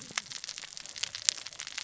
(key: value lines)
label: biophony, cascading saw
recorder: SoundTrap 600 or HydroMoth